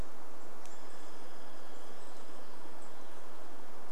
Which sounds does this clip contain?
Chestnut-backed Chickadee call, Douglas squirrel rattle, unidentified bird chip note